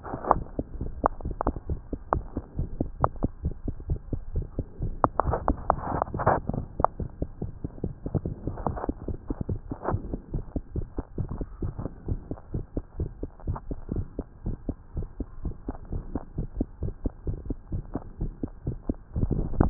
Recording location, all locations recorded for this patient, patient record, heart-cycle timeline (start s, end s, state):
tricuspid valve (TV)
aortic valve (AV)+pulmonary valve (PV)+tricuspid valve (TV)+mitral valve (MV)
#Age: Child
#Sex: Female
#Height: 119.0 cm
#Weight: 23.6 kg
#Pregnancy status: False
#Murmur: Absent
#Murmur locations: nan
#Most audible location: nan
#Systolic murmur timing: nan
#Systolic murmur shape: nan
#Systolic murmur grading: nan
#Systolic murmur pitch: nan
#Systolic murmur quality: nan
#Diastolic murmur timing: nan
#Diastolic murmur shape: nan
#Diastolic murmur grading: nan
#Diastolic murmur pitch: nan
#Diastolic murmur quality: nan
#Outcome: Normal
#Campaign: 2015 screening campaign
0.00	1.98	unannotated
1.98	2.14	diastole
2.14	2.24	S1
2.24	2.35	systole
2.35	2.44	S2
2.44	2.57	diastole
2.57	2.70	S1
2.70	2.79	systole
2.79	2.90	S2
2.90	3.00	diastole
3.00	3.09	S1
3.09	3.21	systole
3.21	3.30	S2
3.30	3.44	diastole
3.44	3.54	S1
3.54	3.66	systole
3.66	3.76	S2
3.76	3.90	diastole
3.90	3.99	S1
3.99	4.11	systole
4.11	4.19	S2
4.19	4.33	diastole
4.33	4.46	S1
4.46	4.56	systole
4.56	4.66	S2
4.66	4.82	diastole
4.82	4.94	S1
4.94	5.02	systole
5.02	5.12	S2
5.12	5.26	diastole
5.26	5.38	S1
5.38	5.48	systole
5.48	5.58	S2
5.58	5.70	diastole
5.70	5.78	S1
5.78	5.93	systole
5.93	6.02	S2
6.02	6.14	diastole
6.14	6.22	S1
6.22	6.34	systole
6.34	6.42	S2
6.42	6.52	diastole
6.52	6.62	S1
6.62	6.77	systole
6.77	6.85	S2
6.85	6.97	diastole
6.97	7.07	S1
7.07	7.20	systole
7.20	7.28	S2
7.28	7.41	diastole
7.41	7.49	S1
7.49	7.62	systole
7.62	7.69	S2
7.69	7.84	diastole
7.84	7.94	S1
7.94	8.05	systole
8.05	8.11	S2
8.11	8.24	diastole
8.24	8.30	S1
8.30	8.44	systole
8.44	8.51	S2
8.51	8.68	diastole
8.68	8.80	S1
8.80	8.86	systole
8.86	8.93	S2
8.93	9.10	diastole
9.10	9.18	S1
9.18	9.29	systole
9.29	9.36	S2
9.36	9.48	diastole
9.48	9.57	S1
9.57	9.69	systole
9.69	9.77	S2
9.77	9.91	diastole
9.91	10.02	S1
10.02	10.13	systole
10.13	10.20	S2
10.20	10.34	diastole
10.34	10.44	S1
10.44	10.54	systole
10.54	10.61	S2
10.61	10.76	diastole
10.76	10.86	S1
10.86	10.98	systole
10.98	11.06	S2
11.06	11.18	diastole
11.18	11.30	S1
11.30	11.40	systole
11.40	11.46	S2
11.46	11.62	diastole
11.62	11.74	S1
11.74	11.83	systole
11.83	11.90	S2
11.90	12.10	diastole
12.10	12.20	S1
12.20	12.32	systole
12.32	12.38	S2
12.38	12.54	diastole
12.54	12.66	S1
12.66	12.76	systole
12.76	12.84	S2
12.84	12.98	diastole
12.98	13.10	S1
13.10	13.21	systole
13.21	13.30	S2
13.30	13.48	diastole
13.48	13.60	S1
13.60	13.70	systole
13.70	13.80	S2
13.80	13.92	diastole
13.92	14.06	S1
14.06	14.18	systole
14.18	14.24	S2
14.24	14.46	diastole
14.46	14.58	S1
14.58	14.68	systole
14.68	14.76	S2
14.76	14.98	diastole
14.98	15.08	S1
15.08	15.20	systole
15.20	15.28	S2
15.28	15.46	diastole
15.46	15.54	S1
15.54	15.68	systole
15.68	15.76	S2
15.76	15.94	diastole
15.94	16.04	S1
16.04	16.14	systole
16.14	16.24	S2
16.24	16.38	diastole
16.38	16.48	S1
16.48	16.58	systole
16.58	16.68	S2
16.68	16.84	diastole
16.84	16.94	S1
16.94	17.04	systole
17.04	17.12	S2
17.12	17.28	diastole
17.28	17.40	S1
17.40	17.50	systole
17.50	17.56	S2
17.56	17.72	diastole
17.72	17.82	S1
17.82	17.93	systole
17.93	18.02	S2
18.02	18.22	diastole
18.22	18.32	S1
18.32	18.41	systole
18.41	18.48	S2
18.48	18.68	diastole
18.68	18.78	S1
18.78	18.87	systole
18.87	18.96	S2
18.96	19.15	diastole
19.15	19.70	unannotated